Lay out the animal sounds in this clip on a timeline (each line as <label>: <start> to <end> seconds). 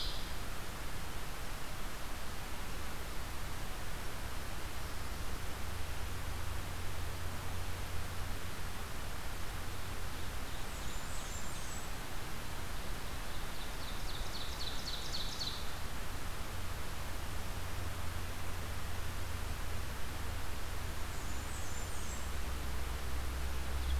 Blackburnian Warbler (Setophaga fusca): 10.4 to 11.9 seconds
Ovenbird (Seiurus aurocapilla): 13.3 to 16.0 seconds
Blackburnian Warbler (Setophaga fusca): 20.7 to 22.4 seconds